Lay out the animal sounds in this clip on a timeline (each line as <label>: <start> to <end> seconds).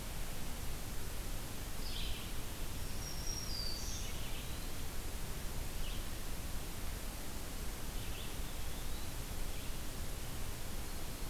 Red-eyed Vireo (Vireo olivaceus): 0.0 to 11.3 seconds
Black-throated Green Warbler (Setophaga virens): 2.6 to 4.3 seconds
Eastern Wood-Pewee (Contopus virens): 3.9 to 4.7 seconds
Eastern Wood-Pewee (Contopus virens): 8.2 to 9.1 seconds